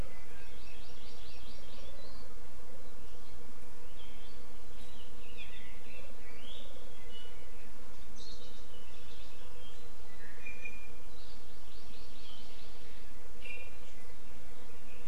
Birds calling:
Hawaii Amakihi (Chlorodrepanis virens), Iiwi (Drepanis coccinea)

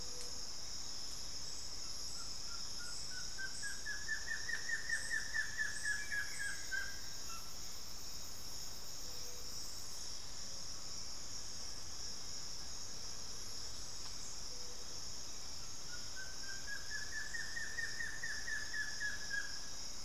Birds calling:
Hauxwell's Thrush (Turdus hauxwelli), Buff-throated Woodcreeper (Xiphorhynchus guttatus), Plain-winged Antshrike (Thamnophilus schistaceus)

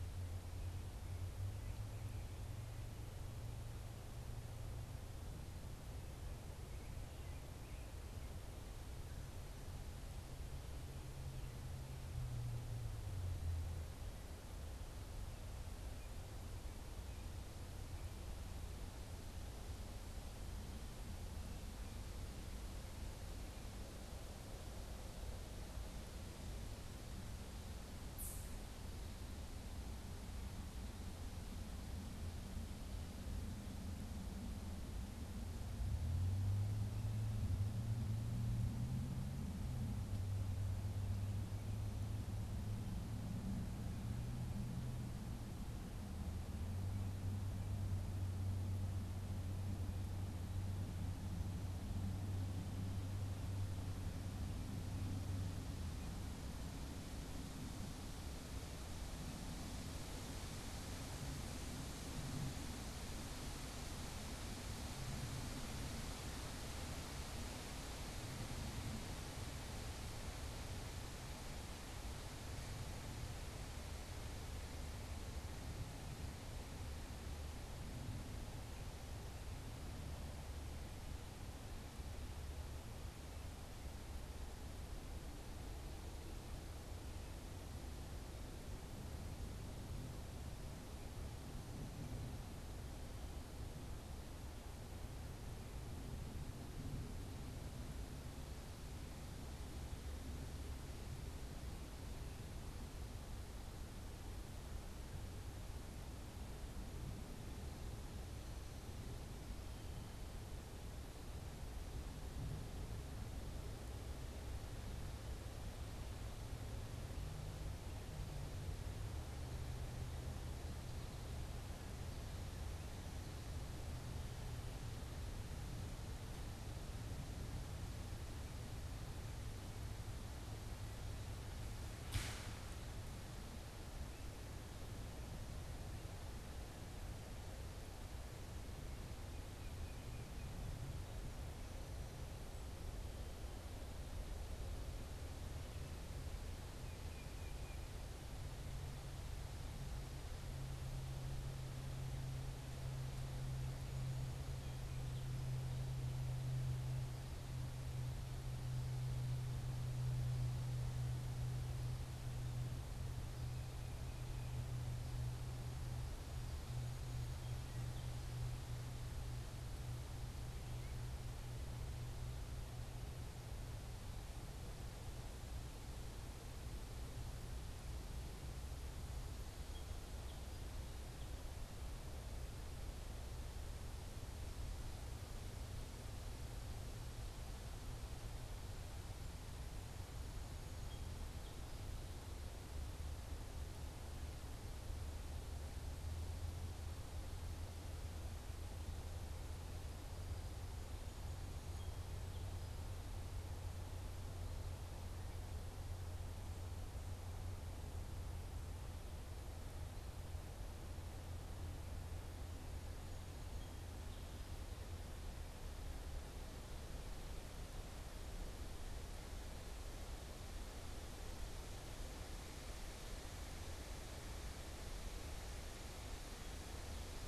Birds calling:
Song Sparrow (Melospiza melodia), Tufted Titmouse (Baeolophus bicolor)

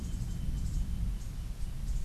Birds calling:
Cabanis's Wren (Cantorchilus modestus)

